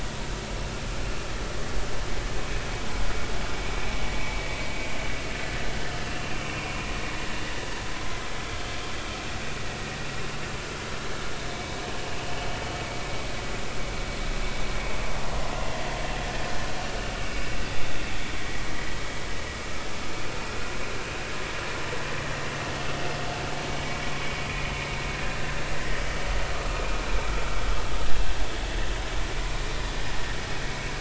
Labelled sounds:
6.1	6.3	vessel noise, 2.7 to 2.8 kHz
11.5	11.8	vessel noise, 2.2 to 2.3 kHz
16.2	16.5	vessel noise, 1.7 to 1.9 kHz
30.7	30.9	vessel noise, 2.1 to 2.3 kHz

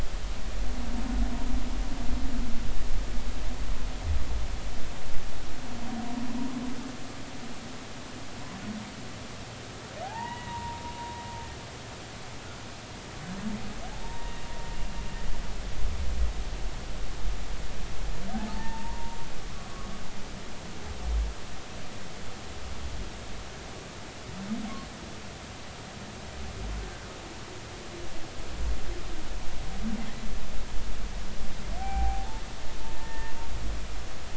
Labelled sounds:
10.0	10.8	humpback whale, 0.80 to 3.0 kHz
14.0	14.4	humpback whale, 0.86 to 1.9 kHz
18.3	19.2	humpback whale, 0.80 to 1.1 kHz
31.8	32.3	humpback whale, 0.80 to 0.86 kHz
32.9	33.3	humpback whale, 0.86 to 2.0 kHz

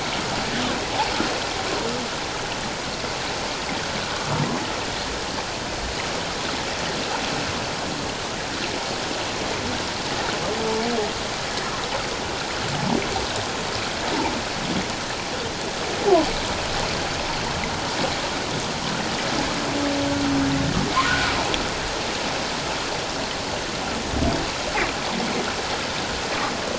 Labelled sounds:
21.1	21.3	humpback whale, 1.3 to 1.7 kHz

